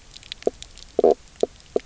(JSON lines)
{"label": "biophony, knock croak", "recorder": "SoundTrap 300"}